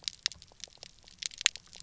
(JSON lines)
{"label": "biophony, pulse", "recorder": "SoundTrap 300"}